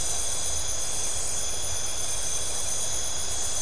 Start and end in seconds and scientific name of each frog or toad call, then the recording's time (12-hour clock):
none
12:30am